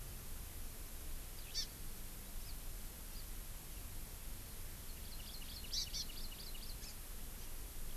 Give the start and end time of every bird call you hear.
[1.48, 1.68] Hawaii Amakihi (Chlorodrepanis virens)
[4.88, 6.98] Hawaii Amakihi (Chlorodrepanis virens)

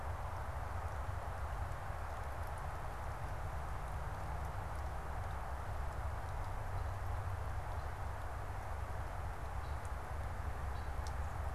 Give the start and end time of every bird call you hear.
[6.52, 10.22] Red-winged Blackbird (Agelaius phoeniceus)
[10.62, 10.92] Red-winged Blackbird (Agelaius phoeniceus)

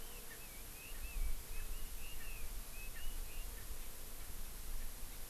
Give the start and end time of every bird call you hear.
[0.00, 3.60] Red-billed Leiothrix (Leiothrix lutea)
[0.30, 0.40] Erckel's Francolin (Pternistis erckelii)
[0.90, 1.10] Erckel's Francolin (Pternistis erckelii)
[1.50, 1.70] Erckel's Francolin (Pternistis erckelii)

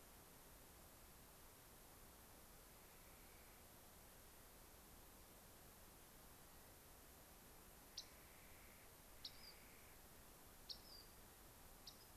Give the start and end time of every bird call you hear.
[7.86, 8.05] Rock Wren (Salpinctes obsoletus)
[7.86, 10.05] Clark's Nutcracker (Nucifraga columbiana)
[9.05, 9.55] Rock Wren (Salpinctes obsoletus)
[10.55, 11.26] Rock Wren (Salpinctes obsoletus)
[11.76, 12.15] Rock Wren (Salpinctes obsoletus)

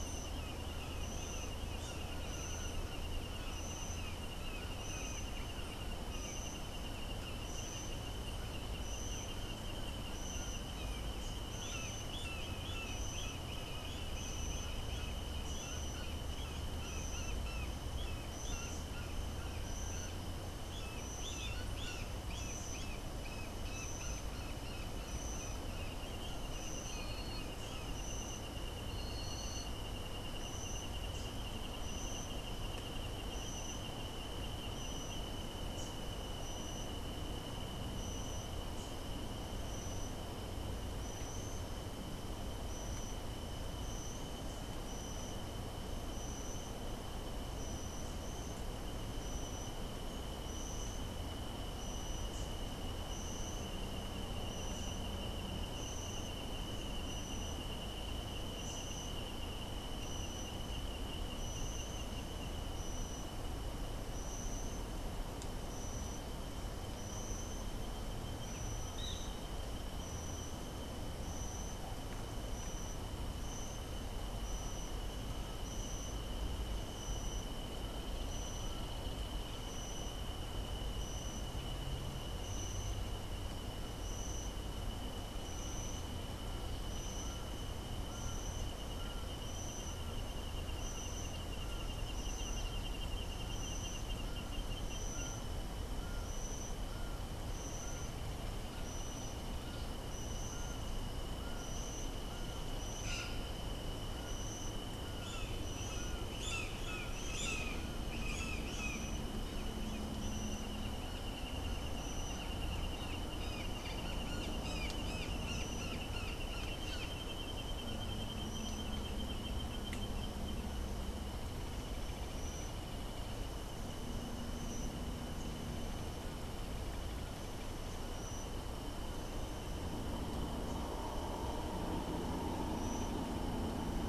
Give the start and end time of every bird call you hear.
[11.32, 27.02] Brown Jay (Psilorhinus morio)
[31.02, 31.52] Rufous-capped Warbler (Basileuterus rufifrons)
[35.62, 36.12] Rufous-capped Warbler (Basileuterus rufifrons)
[52.22, 52.52] Rufous-capped Warbler (Basileuterus rufifrons)
[68.92, 69.32] Great Kiskadee (Pitangus sulphuratus)
[95.92, 109.52] Laughing Falcon (Herpetotheres cachinnans)
[103.02, 109.22] Brown Jay (Psilorhinus morio)
[113.02, 117.32] Brown Jay (Psilorhinus morio)

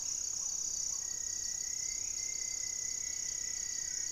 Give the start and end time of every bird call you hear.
[0.00, 1.39] Black-tailed Trogon (Trogon melanurus)
[0.00, 4.11] Buff-breasted Wren (Cantorchilus leucotis)
[0.69, 4.11] Buff-throated Woodcreeper (Xiphorhynchus guttatus)

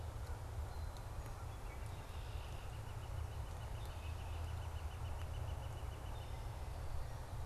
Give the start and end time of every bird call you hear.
[1.17, 6.67] Northern Flicker (Colaptes auratus)

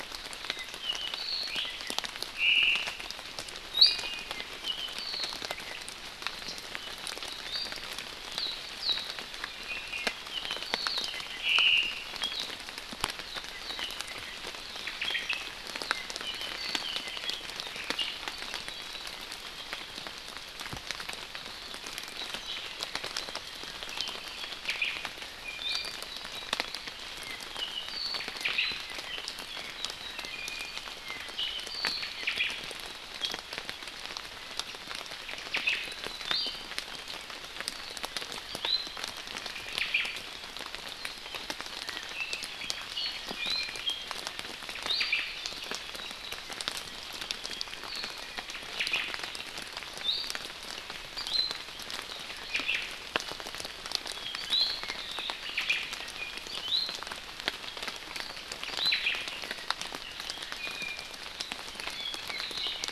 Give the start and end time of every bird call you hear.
[0.42, 1.52] Apapane (Himatione sanguinea)
[2.33, 3.02] Omao (Myadestes obscurus)
[3.73, 4.42] Iiwi (Drepanis coccinea)
[7.42, 7.83] Iiwi (Drepanis coccinea)
[9.53, 10.12] Iiwi (Drepanis coccinea)
[10.32, 11.43] Apapane (Himatione sanguinea)
[11.43, 11.93] Omao (Myadestes obscurus)
[14.82, 15.53] Omao (Myadestes obscurus)
[15.72, 17.52] Apapane (Himatione sanguinea)
[24.62, 25.02] Omao (Myadestes obscurus)
[25.43, 26.02] Iiwi (Drepanis coccinea)
[27.23, 30.23] Apapane (Himatione sanguinea)
[28.43, 28.82] Omao (Myadestes obscurus)
[30.23, 30.82] Iiwi (Drepanis coccinea)
[30.93, 32.23] Apapane (Himatione sanguinea)
[32.23, 32.52] Omao (Myadestes obscurus)
[35.52, 35.92] Omao (Myadestes obscurus)
[36.23, 36.73] Iiwi (Drepanis coccinea)
[38.62, 39.02] Iiwi (Drepanis coccinea)
[39.62, 40.23] Omao (Myadestes obscurus)
[41.83, 43.33] Apapane (Himatione sanguinea)
[43.33, 43.92] Iiwi (Drepanis coccinea)
[44.83, 45.23] Iiwi (Drepanis coccinea)
[45.02, 45.42] Omao (Myadestes obscurus)
[48.73, 49.12] Omao (Myadestes obscurus)
[50.02, 50.52] Iiwi (Drepanis coccinea)
[51.23, 51.62] Iiwi (Drepanis coccinea)
[52.52, 52.92] Omao (Myadestes obscurus)
[54.33, 54.83] Iiwi (Drepanis coccinea)
[55.42, 55.92] Omao (Myadestes obscurus)
[56.52, 57.02] Iiwi (Drepanis coccinea)
[58.62, 59.02] Iiwi (Drepanis coccinea)
[58.92, 59.33] Omao (Myadestes obscurus)
[60.62, 61.12] Iiwi (Drepanis coccinea)
[61.83, 62.91] Apapane (Himatione sanguinea)

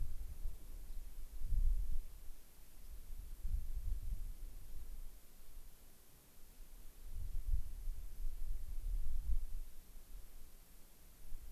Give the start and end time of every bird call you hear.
[2.79, 2.89] Rock Wren (Salpinctes obsoletus)

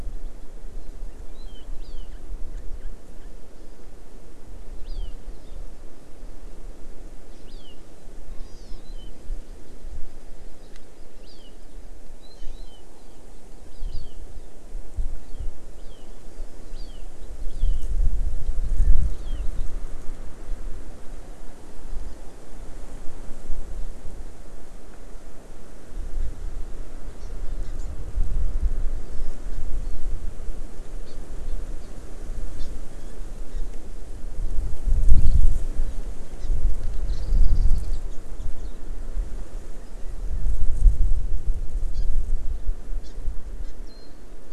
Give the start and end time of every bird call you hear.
[8.34, 8.84] Hawaii Amakihi (Chlorodrepanis virens)
[12.34, 12.74] Hawaii Amakihi (Chlorodrepanis virens)
[13.84, 14.14] Hawaii Amakihi (Chlorodrepanis virens)
[27.24, 27.34] Hawaii Amakihi (Chlorodrepanis virens)
[27.64, 27.74] Hawaii Amakihi (Chlorodrepanis virens)
[29.54, 29.64] Hawaii Amakihi (Chlorodrepanis virens)
[31.04, 31.14] Hawaii Amakihi (Chlorodrepanis virens)
[32.54, 32.64] Hawaii Amakihi (Chlorodrepanis virens)
[36.34, 36.44] Hawaii Amakihi (Chlorodrepanis virens)
[37.14, 37.24] Hawaii Amakihi (Chlorodrepanis virens)
[37.24, 38.04] Warbling White-eye (Zosterops japonicus)
[41.94, 42.04] Hawaii Amakihi (Chlorodrepanis virens)
[43.04, 43.14] Hawaii Amakihi (Chlorodrepanis virens)
[43.64, 43.74] Hawaii Amakihi (Chlorodrepanis virens)
[43.84, 44.24] Warbling White-eye (Zosterops japonicus)

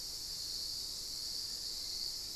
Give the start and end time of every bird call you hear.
[0.00, 2.35] Hauxwell's Thrush (Turdus hauxwelli)

